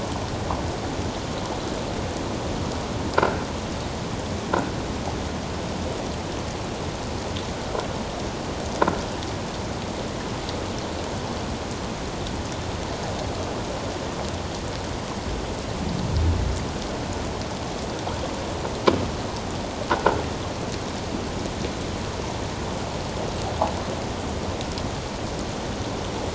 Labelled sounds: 3.2	3.4	croaking sound likely from a nearby submerged object, 1.3 to 1.7 kHz
19.9	20.2	croaking sound likely from a nearby submerged object, 1.3 to 1.5 kHz

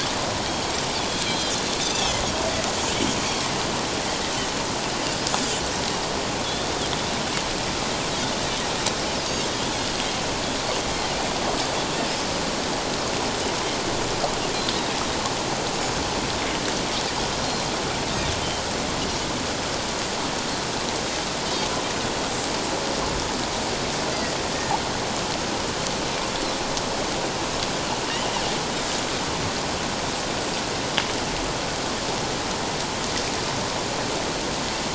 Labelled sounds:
1.1	2.2	Pacific white-sided dolphin, 3.0 to 4.2 kHz
6.4	6.7	Pacific white-sided dolphin, 3.3 to 3.7 kHz
24.1	24.4	Pacific white-sided dolphin, 1.9 to 2.1 kHz

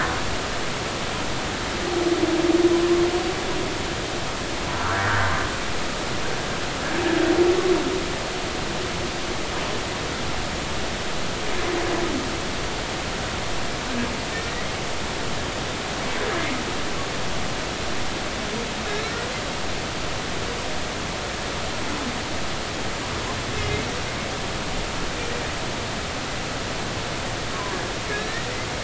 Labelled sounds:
4.7	5.3	humpback whale, 0.90 to 1.8 kHz
23.7	23.9	humpback whale, 2.0 to 2.3 kHz
28.1	28.5	humpback whale, 1.6 to 1.9 kHz

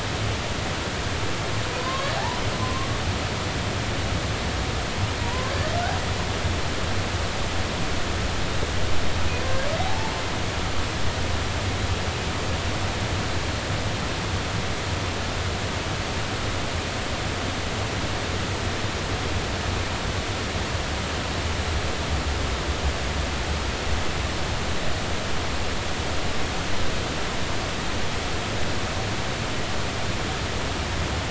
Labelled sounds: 1.8	2.9	humpback whale, 0.80 to 1.2 kHz
5.2	5.5	humpback whale, 0.90 to 1.1 kHz
9.4	10.1	humpback whale, 0.80 to 1.7 kHz

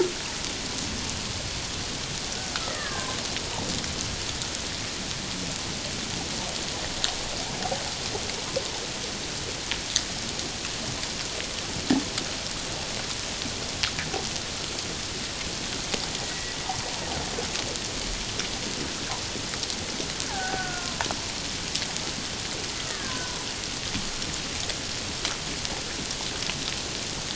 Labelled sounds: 2.7	3.2	killer whale, Bigg's (transient), 0.94 to 2.0 kHz
16.2	16.6	killer whale, Bigg's (transient), 1.9 to 2.0 kHz
20.3	21.1	killer whale, Bigg's (transient), 0.78 to 1.8 kHz
22.9	23.3	killer whale, Bigg's (transient), 1.4 to 1.9 kHz

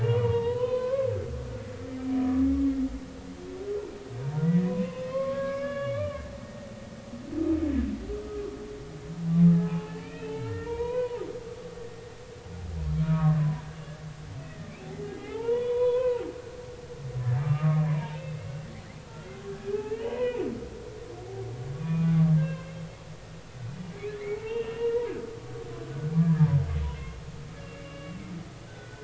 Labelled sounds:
0.0	1.1	humpback whale, 0.86 to 4.1 kHz
2.2	2.5	humpback whale, 1.1 to 1.3 kHz
4.2	6.2	humpback whale, 0.86 to 5.4 kHz
9.5	11.2	humpback whale, 0.80 to 3.2 kHz
13.0	13.6	humpback whale, 0.93 to 2.4 kHz
14.4	14.7	humpback whale, 1.8 to 2.0 kHz
15.2	16.2	humpback whale, 0.80 to 3.6 kHz
17.4	18.5	humpback whale, 0.86 to 2.7 kHz
19.0	19.3	humpback whale, 1.3 to 1.5 kHz
19.7	20.4	humpback whale, 0.80 to 3.2 kHz
21.7	22.8	humpback whale, 0.99 to 2.8 kHz
24.3	25.0	humpback whale, 0.83 to 3.3 kHz
26.2	26.5	humpback whale, 1.6 to 1.9 kHz
26.9	28.2	humpback whale, 2.6 to 2.9 kHz
28.7	29.0	humpback whale, 1.4 to 1.6 kHz

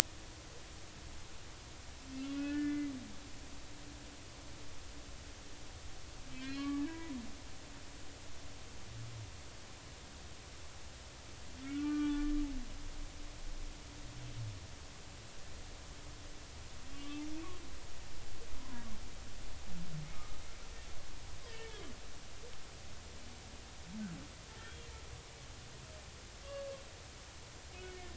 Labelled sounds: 2.1	2.9	humpback whale, 1.4 to 2.9 kHz
6.3	7.2	humpback whale, 0.93 to 2.6 kHz
11.6	12.3	humpback whale, 1.1 to 3.0 kHz
16.9	17.2	humpback whale, 1.1 to 3.6 kHz
18.6	18.9	humpback whale, 0.90 to 1.1 kHz
20.1	20.4	humpback whale, 1.2 to 1.3 kHz
21.5	21.8	humpback whale, 1.8 to 2.3 kHz
24.6	24.9	humpback whale, 3.2 to 3.3 kHz
27.7	28.0	humpback whale, 2.9 to 3.0 kHz

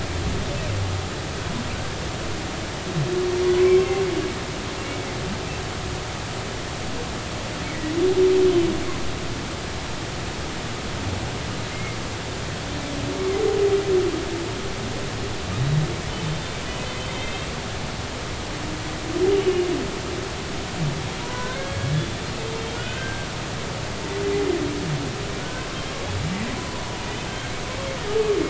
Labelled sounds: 11.7	12.0	humpback whale, 2.0 to 2.2 kHz
17.1	17.5	humpback whale, 2.0 to 3.8 kHz
19.4	19.7	humpback whale, 2.8 to 3.0 kHz
21.3	23.3	humpback whale, 0.93 to 3.6 kHz
25.4	25.7	humpback whale, 1.4 to 1.6 kHz
27.0	27.6	humpback whale, 2.1 to 2.6 kHz

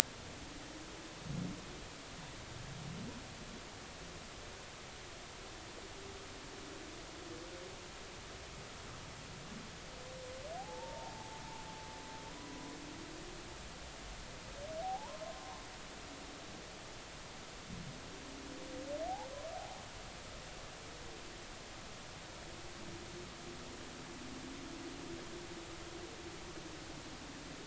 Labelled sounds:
10.6	11.4	humpback whale, 0.80 to 0.99 kHz
12.3	12.8	humpback whale, 0.90 to 1.1 kHz
14.8	15.6	humpback whale, 0.80 to 1.1 kHz

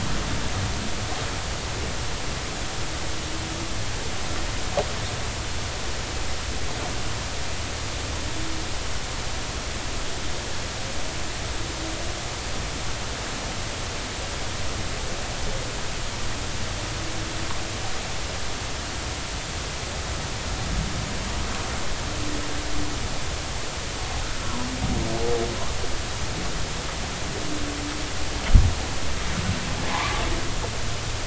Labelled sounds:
29.9	30.2	humpback whale, 0.80 to 1.2 kHz

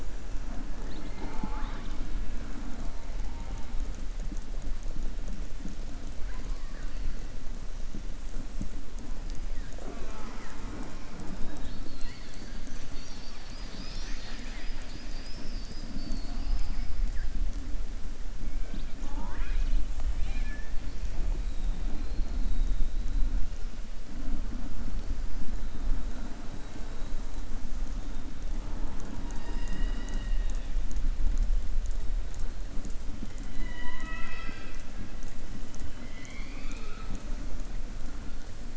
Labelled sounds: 20.1	20.7	killer whale, southern resident, 0.84 to 4.2 kHz
33.5	34.9	killer whale, southern resident, 0.66 to 6.0 kHz
35.9	37.2	killer whale, southern resident, 0.76 to 7.4 kHz

